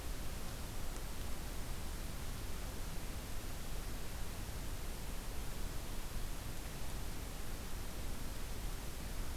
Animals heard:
forest ambience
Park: Acadia National Park